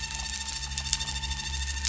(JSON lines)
{"label": "anthrophony, boat engine", "recorder": "SoundTrap 300"}